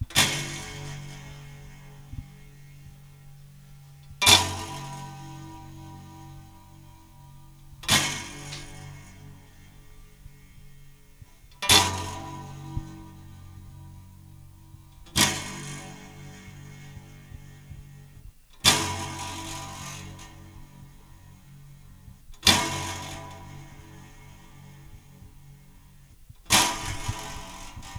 How many times does the clanging occur?
eight